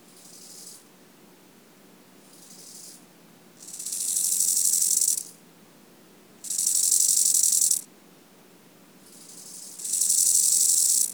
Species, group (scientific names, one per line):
Chorthippus eisentrauti
Orthoptera